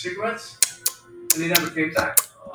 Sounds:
Sniff